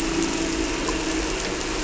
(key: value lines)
label: anthrophony, boat engine
recorder: SoundTrap 300